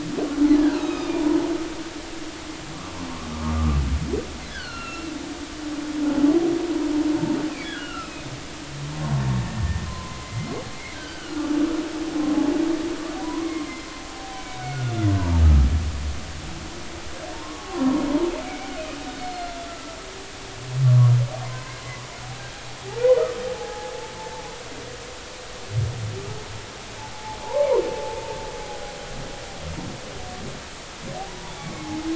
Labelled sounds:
0.6	1.3	humpback whale, 1.2 to 3.9 kHz
4.5	5.1	humpback whale, 1.3 to 4.8 kHz
7.5	8.3	humpback whale, 1.2 to 3.0 kHz
9.4	10.5	humpback whale, 0.96 to 2.1 kHz
10.9	11.3	humpback whale, 1.4 to 1.7 kHz
13.2	13.6	humpback whale, 0.93 to 1.2 kHz
14.0	15.1	humpback whale, 0.80 to 3.6 kHz
17.3	17.8	humpback whale, 0.80 to 1.2 kHz
18.4	18.7	humpback whale, 2.1 to 2.4 kHz
19.0	19.9	humpback whale, 1.3 to 4.5 kHz
21.5	21.7	humpback whale, 0.99 to 1.1 kHz
23.5	24.4	humpback whale, 0.80 to 0.93 kHz
27.1	27.8	humpback whale, 0.80 to 1.2 kHz
28.6	28.9	humpback whale, 0.80 to 0.86 kHz
31.3	31.9	humpback whale, 0.80 to 3.5 kHz

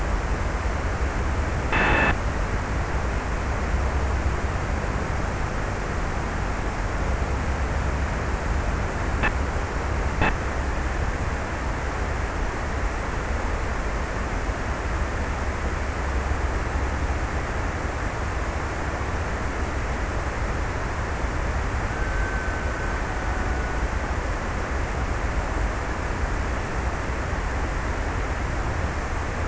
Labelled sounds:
21.3	24.9	killer whale, Bigg's (transient), 1.1 to 1.7 kHz

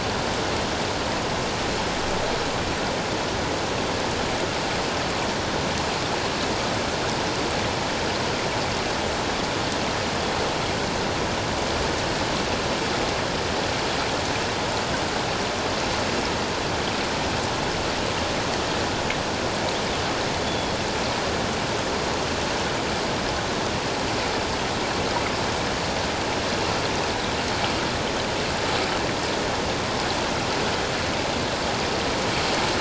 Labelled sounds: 20.4	20.8	Pacific white-sided dolphin, 3.2 to 3.5 kHz

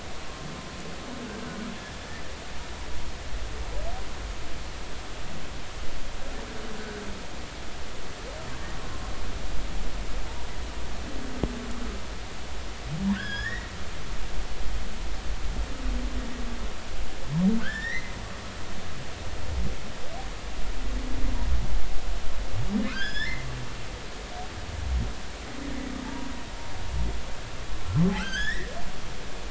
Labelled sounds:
13.1	13.7	humpback whale, 1.4 to 5.3 kHz
17.6	18.1	humpback whale, 1.4 to 5.8 kHz
22.9	23.5	humpback whale, 1.2 to 7.0 kHz
26.0	26.3	humpback whale, 0.80 to 0.99 kHz
28.2	28.7	humpback whale, 1.3 to 5.6 kHz

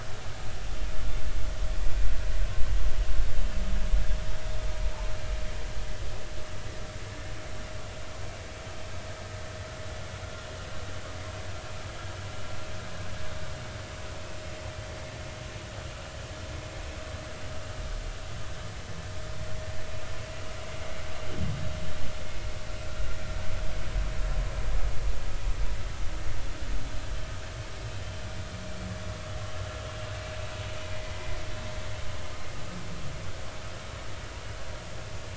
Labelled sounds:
29.8	30.1	vessel noise, 2.7 to 2.8 kHz
30.9	31.4	vessel noise, 2.0 to 2.1 kHz

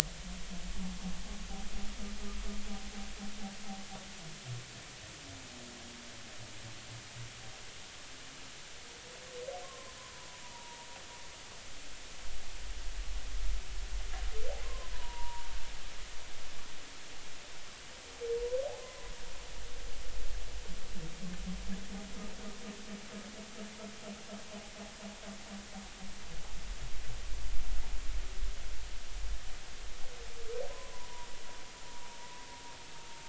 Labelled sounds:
9.6	10.9	humpback whale, 0.80 to 1.2 kHz
14.6	15.5	humpback whale, 0.90 to 1.1 kHz
18.8	19.1	humpback whale, 0.96 to 1.1 kHz
30.9	31.3	humpback whale, 0.90 to 1.1 kHz

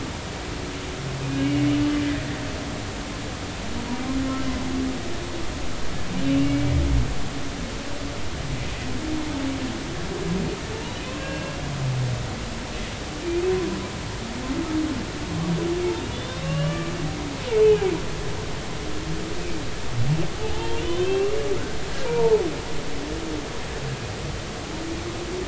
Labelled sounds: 1.4	1.6	humpback whale, 2.8 to 3.0 kHz
2.1	2.4	humpback whale, 1.7 to 2.0 kHz
11.0	11.6	humpback whale, 1.5 to 2.8 kHz
16.0	16.9	humpback whale, 1.1 to 3.8 kHz
17.6	17.9	humpback whale, 2.2 to 2.6 kHz
20.4	21.3	humpback whale, 0.80 to 3.7 kHz
22.0	22.4	humpback whale, 0.83 to 0.99 kHz

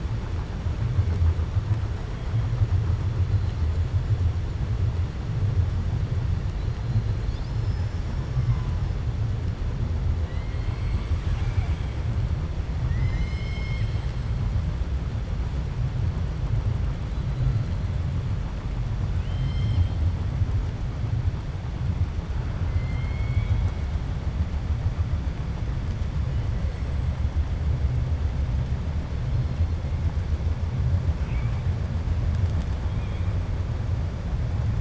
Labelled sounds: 19.1	20.0	killer whale, 2.1 to 6.3 kHz
22.7	23.8	killer whale, 1.4 to 4.5 kHz

